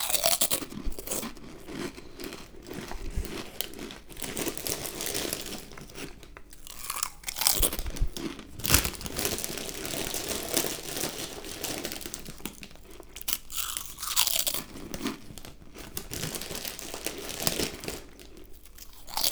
Does the person whistle?
no